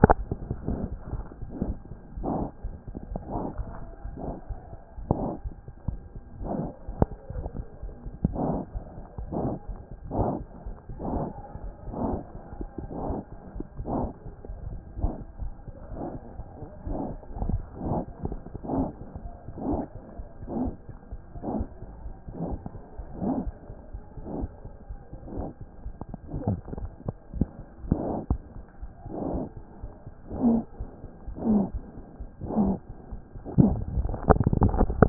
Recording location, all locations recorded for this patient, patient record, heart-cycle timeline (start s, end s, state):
aortic valve (AV)
aortic valve (AV)+pulmonary valve (PV)+mitral valve (MV)
#Age: Infant
#Sex: Female
#Height: 57.0 cm
#Weight: 4.8 kg
#Pregnancy status: False
#Murmur: Absent
#Murmur locations: nan
#Most audible location: nan
#Systolic murmur timing: nan
#Systolic murmur shape: nan
#Systolic murmur grading: nan
#Systolic murmur pitch: nan
#Systolic murmur quality: nan
#Diastolic murmur timing: nan
#Diastolic murmur shape: nan
#Diastolic murmur grading: nan
#Diastolic murmur pitch: nan
#Diastolic murmur quality: nan
#Outcome: Abnormal
#Campaign: 2014 screening campaign
0.00	2.64	unannotated
2.64	2.73	S1
2.73	2.85	systole
2.85	2.95	S2
2.95	3.12	diastole
3.12	3.22	S1
3.22	3.34	systole
3.34	3.43	S2
3.43	3.58	diastole
3.58	3.68	S1
3.68	3.80	systole
3.80	3.90	S2
3.90	4.04	diastole
4.04	4.14	S1
4.14	4.26	systole
4.26	4.36	S2
4.36	4.52	diastole
4.52	4.58	S1
4.58	4.68	systole
4.68	4.76	S2
4.76	4.98	diastole
4.98	35.09	unannotated